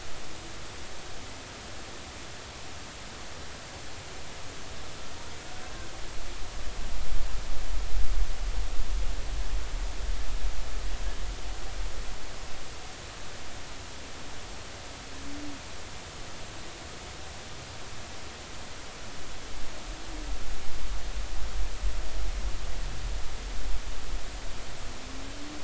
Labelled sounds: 5.6	5.9	humpback whale, 1.5 to 1.7 kHz

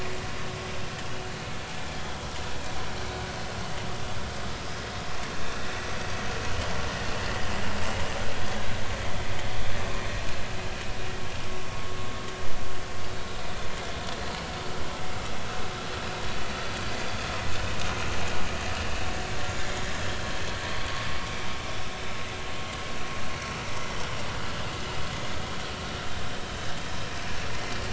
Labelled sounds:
1.0	1.3	vessel noise, 2.8 to 3.0 kHz
4.5	4.8	vessel noise, 4.8 to 5.1 kHz

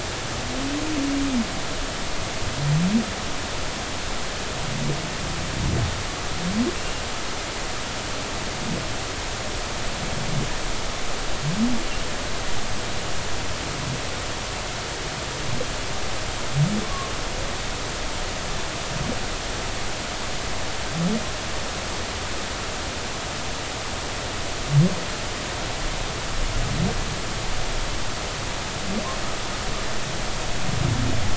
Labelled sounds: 16.8	17.1	humpback whale, 1.0 to 1.2 kHz

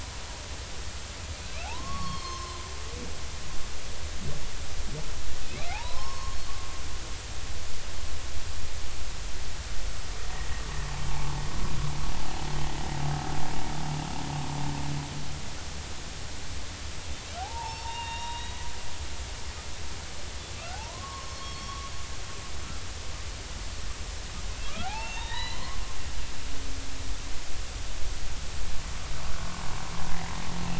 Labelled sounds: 1.6	3.4	humpback whale, 0.80 to 6.4 kHz
5.7	6.4	humpback whale, 0.80 to 5.4 kHz
11.1	11.3	humpback whale, 0.80 to 1.1 kHz
17.4	18.6	humpback whale, 0.80 to 5.5 kHz
20.5	21.9	humpback whale, 0.80 to 4.5 kHz
24.8	25.6	humpback whale, 0.80 to 4.1 kHz
29.4	29.6	humpback whale, 1.0 to 1.2 kHz

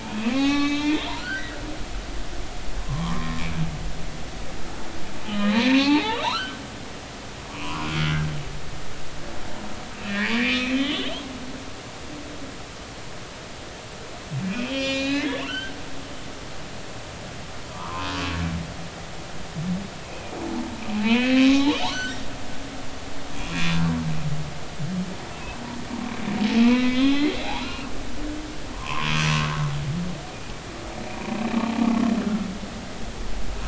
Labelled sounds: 0.0	1.5	humpback whale, 0.80 to 6.6 kHz
2.8	3.4	humpback whale, 0.93 to 1.3 kHz
5.2	6.6	humpback whale, 0.80 to 4.5 kHz
7.5	8.3	humpback whale, 0.93 to 1.7 kHz
10.0	11.1	humpback whale, 2.2 to 3.7 kHz
14.4	15.7	humpback whale, 1.3 to 7.3 kHz
17.7	18.1	humpback whale, 0.86 to 1.4 kHz
20.5	22.7	humpback whale, 0.80 to 4.1 kHz
23.3	23.8	humpback whale, 2.3 to 2.5 kHz
26.6	27.3	humpback whale, 2.0 to 5.2 kHz
27.6	27.9	humpback whale, 1.2 to 2.9 kHz
28.7	29.1	humpback whale, 0.90 to 1.2 kHz
32.2	32.5	humpback whale, 1.3 to 1.4 kHz

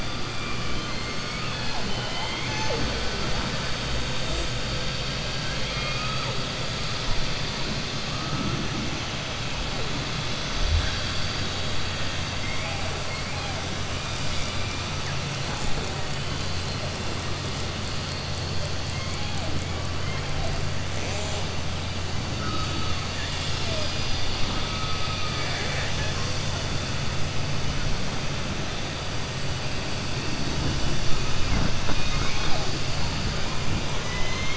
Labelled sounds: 5.2	6.3	killer whale, southern resident, 0.54 to 5.7 kHz
24.4	26.2	killer whale, southern resident, 0.73 to 5.1 kHz

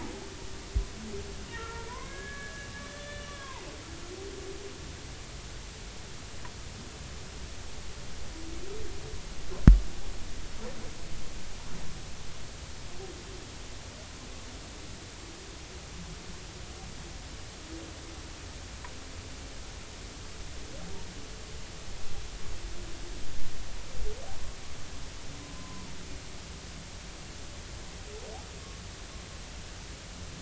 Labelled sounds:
1.5	3.7	humpback whale, 0.80 to 3.6 kHz
25.5	25.9	humpback whale, 0.93 to 1.1 kHz

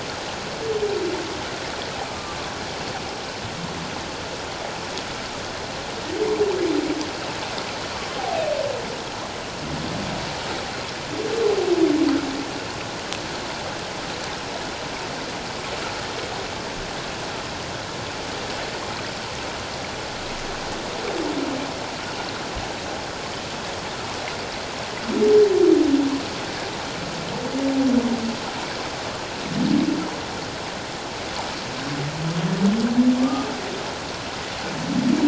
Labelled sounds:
2.1	2.4	humpback whale, 1.1 to 1.2 kHz
33.2	33.5	humpback whale, 1.0 to 1.3 kHz

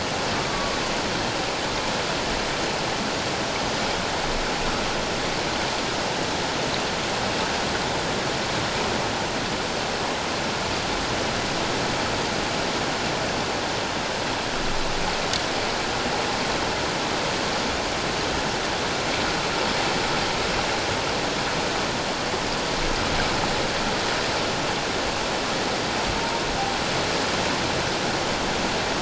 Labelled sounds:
0.5	0.8	humpback whale, 1.0 to 1.2 kHz

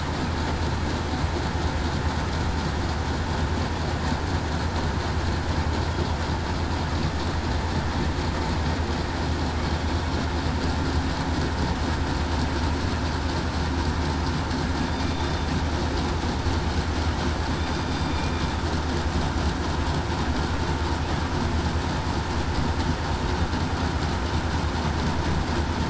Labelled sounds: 14.9	15.5	killer whale, southern resident, 3.5 to 3.6 kHz

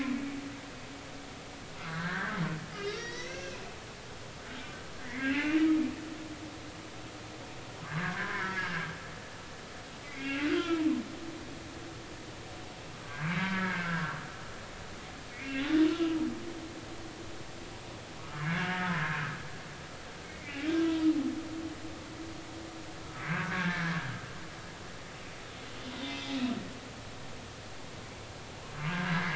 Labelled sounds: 1.8	2.4	humpback whale, 1.3 to 2.0 kHz
2.8	3.6	humpback whale, 1.5 to 6.1 kHz
5.0	5.5	humpback whale, 1.5 to 2.3 kHz
7.9	8.9	humpback whale, 0.93 to 1.9 kHz
10.0	10.8	humpback whale, 1.3 to 2.9 kHz
13.0	14.1	humpback whale, 1.3 to 2.4 kHz
15.3	15.6	humpback whale, 1.9 to 2.5 kHz
18.2	18.9	humpback whale, 1.1 to 1.9 kHz
20.2	20.7	humpback whale, 2.0 to 2.4 kHz
23.2	24.0	humpback whale, 1.4 to 1.9 kHz
26.0	26.4	humpback whale, 2.0 to 5.2 kHz
28.9	29.3	humpback whale, 1.5 to 1.8 kHz

